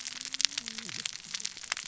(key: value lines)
label: biophony, cascading saw
recorder: SoundTrap 600 or HydroMoth